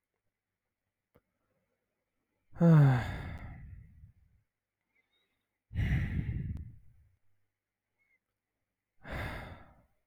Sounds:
Sigh